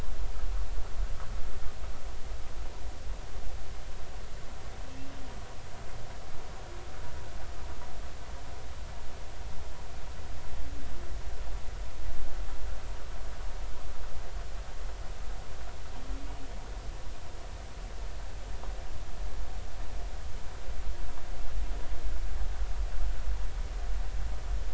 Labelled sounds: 4.9	5.2	humpback whale, 2.6 to 2.8 kHz

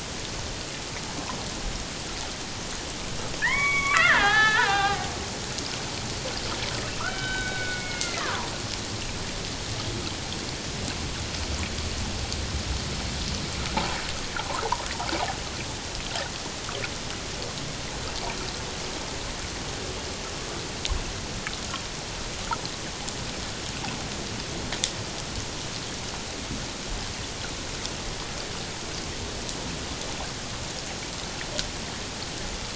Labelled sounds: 3.4	5.0	killer whale, Bigg's (transient), 0.78 to 4.0 kHz
7.0	8.3	killer whale, Bigg's (transient), 1.1 to 3.9 kHz
13.7	14.0	water noise, 0.78 to 1.0 kHz

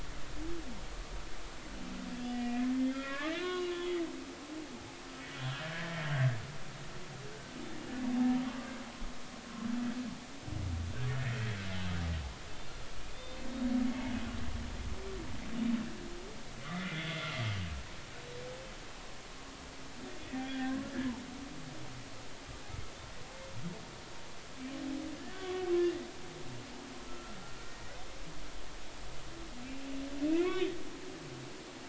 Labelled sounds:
2.2	4.0	humpback whale, 1.0 to 4.1 kHz
5.3	6.1	humpback whale, 1.6 to 3.4 kHz
8.4	8.7	humpback whale, 1.1 to 1.2 kHz
13.1	13.7	humpback whale, 3.5 to 3.8 kHz
16.7	17.1	humpback whale, 1.9 to 2.3 kHz
20.3	20.8	humpback whale, 1.5 to 3.5 kHz
25.3	26.0	humpback whale, 1.1 to 3.5 kHz
27.1	28.0	humpback whale, 1.3 to 2.0 kHz
30.3	30.7	humpback whale, 2.0 to 2.7 kHz

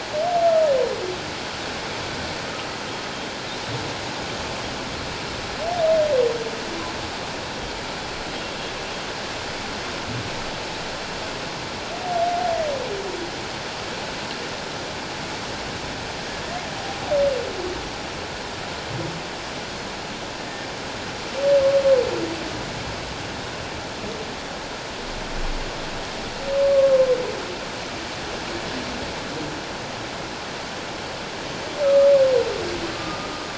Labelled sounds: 26.7	27.1	humpback whale, 1.0 to 1.2 kHz
31.8	33.4	humpback whale, 1.1 to 1.4 kHz

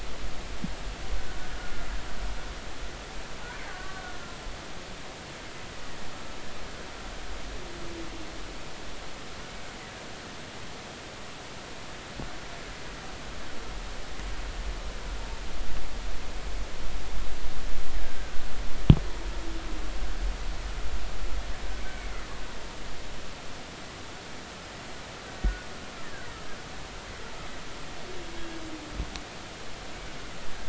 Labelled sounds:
1.2	1.8	killer whale, Bigg's (transient), 1.4 to 1.6 kHz
3.7	4.0	killer whale, Bigg's (transient), 1.1 to 1.2 kHz
18.2	18.4	killer whale, Bigg's (transient), 1.5 to 1.7 kHz

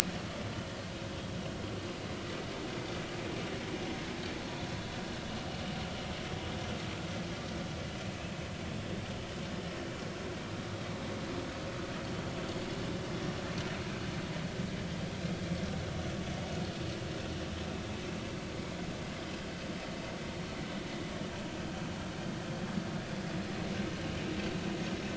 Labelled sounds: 13.1	13.4	vessel noise, 5.5 to 5.7 kHz

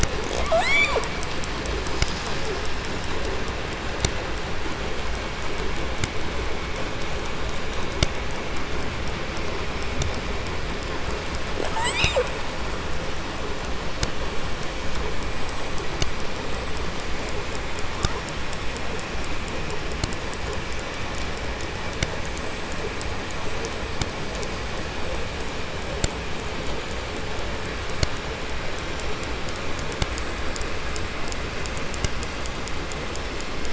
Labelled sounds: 0.2	1.4	killer whale, southern resident, J pod, call S44, 0.18 to 8.0 kHz
11.5	12.4	killer whale, southern resident, J pod, call S44, 0.08 to 8.0 kHz

